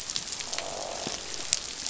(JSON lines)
{"label": "biophony, croak", "recorder": "SoundTrap 500"}